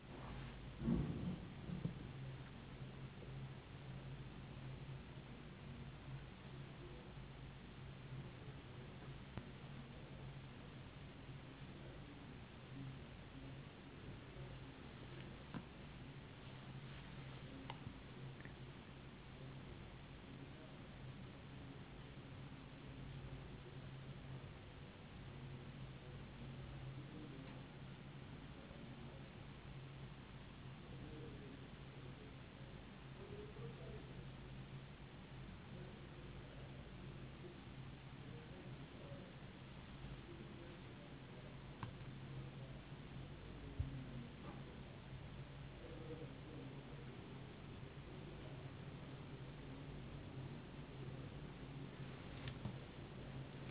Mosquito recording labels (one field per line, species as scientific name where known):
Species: no mosquito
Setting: insect culture